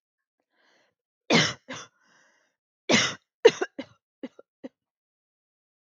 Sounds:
Cough